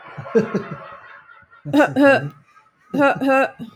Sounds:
Cough